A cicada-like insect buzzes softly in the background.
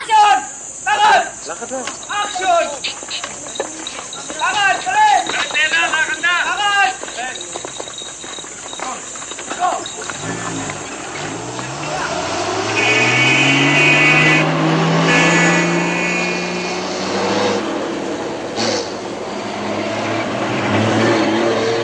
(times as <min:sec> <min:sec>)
0:00.0 0:11.6